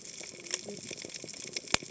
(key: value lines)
label: biophony, cascading saw
recorder: HydroMoth